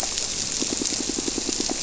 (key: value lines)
label: biophony, squirrelfish (Holocentrus)
recorder: SoundTrap 300